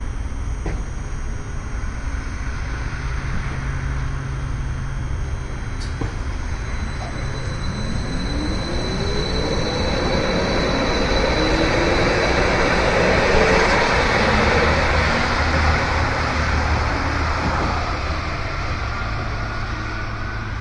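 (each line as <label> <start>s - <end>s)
A train leaves the station loudly. 0.0s - 20.6s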